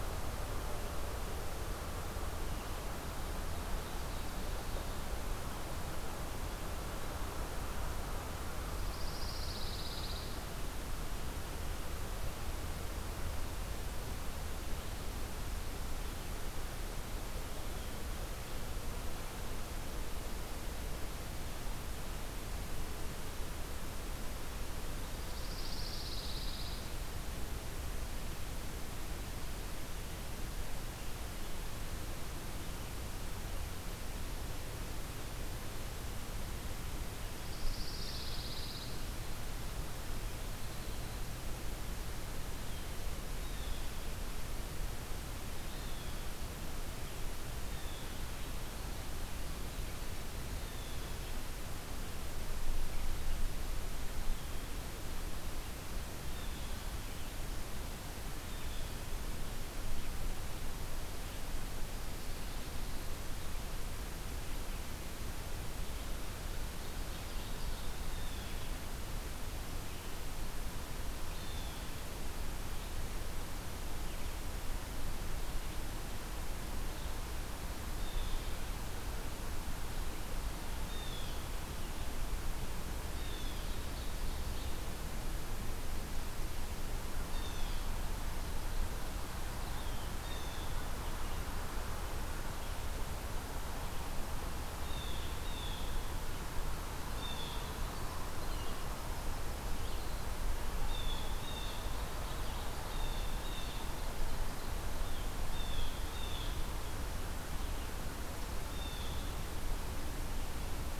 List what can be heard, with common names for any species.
Pine Warbler, Blue Jay, Ovenbird, Winter Wren